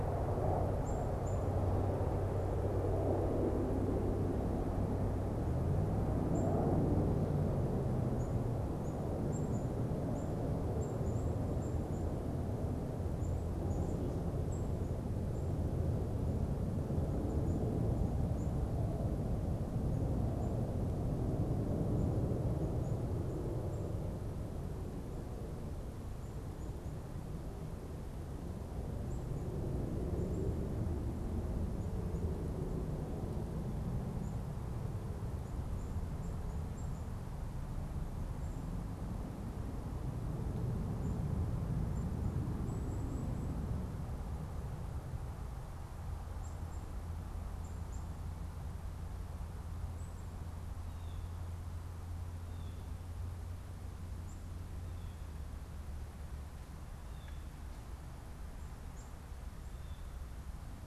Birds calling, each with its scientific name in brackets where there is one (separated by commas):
Blue Jay (Cyanocitta cristata), Black-capped Chickadee (Poecile atricapillus)